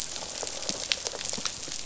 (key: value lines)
label: biophony
recorder: SoundTrap 500